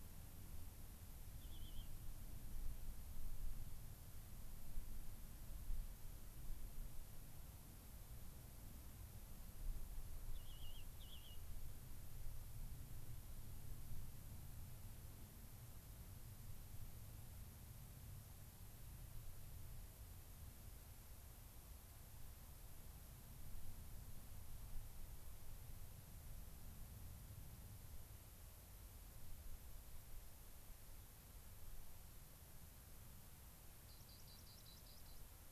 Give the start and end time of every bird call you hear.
[1.27, 1.87] unidentified bird
[10.27, 11.47] unidentified bird
[33.77, 35.27] Rock Wren (Salpinctes obsoletus)

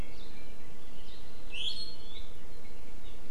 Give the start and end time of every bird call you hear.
[1.50, 2.10] Apapane (Himatione sanguinea)

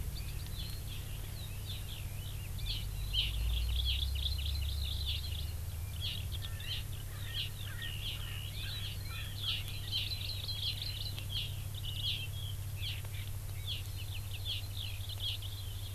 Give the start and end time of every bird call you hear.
[0.00, 9.91] Eurasian Skylark (Alauda arvensis)
[2.61, 2.81] Hawaii Amakihi (Chlorodrepanis virens)
[3.11, 5.51] Hawaii Amakihi (Chlorodrepanis virens)
[6.01, 6.21] Hawaii Amakihi (Chlorodrepanis virens)
[6.41, 9.71] Erckel's Francolin (Pternistis erckelii)
[6.61, 6.81] Hawaii Amakihi (Chlorodrepanis virens)
[7.31, 7.51] Hawaii Amakihi (Chlorodrepanis virens)
[8.01, 8.21] Hawaii Amakihi (Chlorodrepanis virens)
[9.41, 9.61] Hawaii Amakihi (Chlorodrepanis virens)
[9.91, 11.51] Hawaii Amakihi (Chlorodrepanis virens)
[12.01, 12.21] Hawaii Amakihi (Chlorodrepanis virens)
[12.71, 13.01] Hawaii Amakihi (Chlorodrepanis virens)
[13.61, 15.61] Hawaii Amakihi (Chlorodrepanis virens)

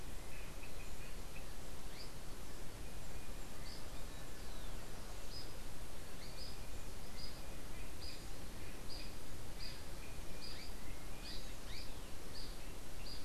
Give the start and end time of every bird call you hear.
[5.11, 13.25] unidentified bird

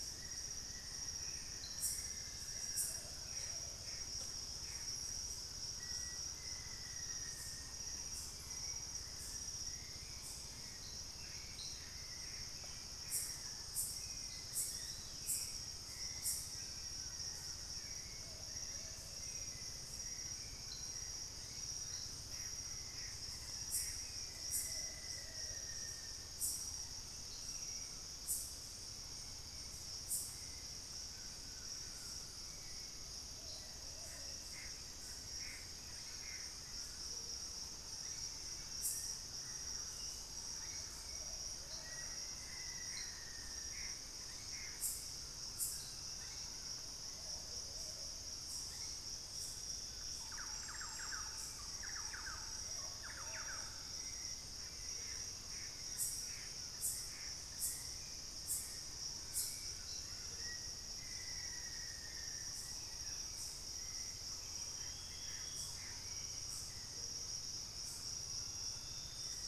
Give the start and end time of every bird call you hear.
[0.00, 3.00] Black-faced Antthrush (Formicarius analis)
[2.80, 3.90] Plumbeous Pigeon (Patagioenas plumbea)
[3.10, 5.20] Gray Antbird (Cercomacra cinerascens)
[5.50, 8.30] Black-faced Antthrush (Formicarius analis)
[7.70, 21.80] Hauxwell's Thrush (Turdus hauxwelli)
[11.50, 14.60] Gray Antbird (Cercomacra cinerascens)
[18.10, 19.20] Plumbeous Pigeon (Patagioenas plumbea)
[21.60, 24.70] Gray Antbird (Cercomacra cinerascens)
[23.60, 26.40] Black-faced Antthrush (Formicarius analis)
[24.60, 25.70] Plumbeous Pigeon (Patagioenas plumbea)
[31.00, 32.30] Collared Trogon (Trogon collaris)
[32.20, 41.50] Hauxwell's Thrush (Turdus hauxwelli)
[33.30, 34.40] Plumbeous Pigeon (Patagioenas plumbea)
[34.40, 36.90] Gray Antbird (Cercomacra cinerascens)
[35.60, 49.60] White-bellied Tody-Tyrant (Hemitriccus griseipectus)
[37.00, 37.40] Amazonian Motmot (Momotus momota)
[41.00, 42.10] Plumbeous Pigeon (Patagioenas plumbea)
[41.80, 43.90] Black-faced Antthrush (Formicarius analis)
[42.80, 45.30] Gray Antbird (Cercomacra cinerascens)
[45.20, 47.00] Collared Trogon (Trogon collaris)
[47.00, 48.20] Plumbeous Pigeon (Patagioenas plumbea)
[50.20, 53.90] Thrush-like Wren (Campylorhynchus turdinus)
[53.90, 66.60] Hauxwell's Thrush (Turdus hauxwelli)
[54.80, 57.30] Gray Antbird (Cercomacra cinerascens)
[59.20, 60.40] Collared Trogon (Trogon collaris)
[60.30, 62.40] Black-faced Antthrush (Formicarius analis)
[62.80, 63.30] unidentified bird
[63.60, 66.10] Gray Antbird (Cercomacra cinerascens)
[66.80, 67.30] Amazonian Motmot (Momotus momota)

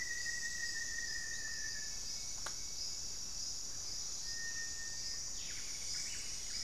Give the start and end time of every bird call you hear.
[0.00, 2.36] Rufous-fronted Antthrush (Formicarius rufifrons)
[0.00, 5.96] Cinereous Tinamou (Crypturellus cinereus)
[1.36, 3.16] Ringed Woodpecker (Celeus torquatus)
[5.86, 6.64] Buff-breasted Wren (Cantorchilus leucotis)

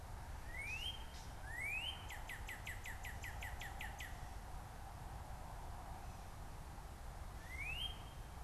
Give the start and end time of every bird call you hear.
[0.42, 8.43] Northern Cardinal (Cardinalis cardinalis)

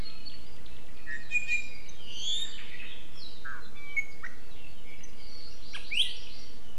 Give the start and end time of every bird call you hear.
[1.10, 2.00] Iiwi (Drepanis coccinea)
[3.60, 4.40] Iiwi (Drepanis coccinea)
[5.20, 6.70] Hawaii Amakihi (Chlorodrepanis virens)

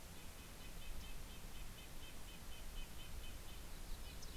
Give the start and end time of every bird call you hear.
[0.00, 4.37] Red-breasted Nuthatch (Sitta canadensis)
[0.02, 1.62] Yellow-rumped Warbler (Setophaga coronata)
[3.52, 4.37] Yellow-rumped Warbler (Setophaga coronata)

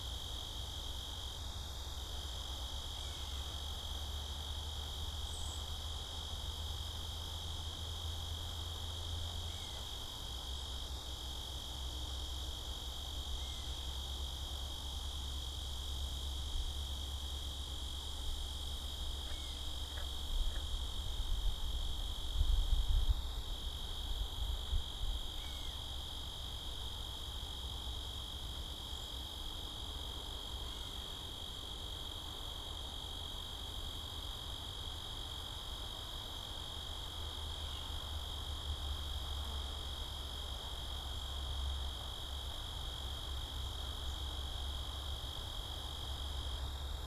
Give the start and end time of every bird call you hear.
[5.14, 5.64] Cedar Waxwing (Bombycilla cedrorum)
[25.14, 25.84] Gray Catbird (Dumetella carolinensis)

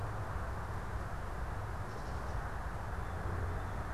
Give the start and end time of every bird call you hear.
[1.71, 2.31] Gray Catbird (Dumetella carolinensis)
[2.81, 3.91] Blue Jay (Cyanocitta cristata)

